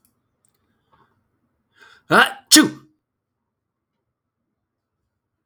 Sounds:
Sneeze